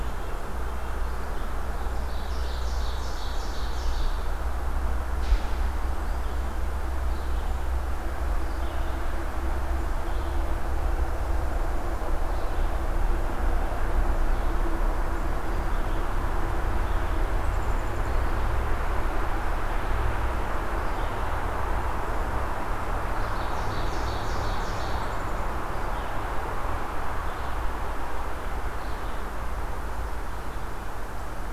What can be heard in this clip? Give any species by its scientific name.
Vireo olivaceus, Seiurus aurocapilla, Poecile atricapillus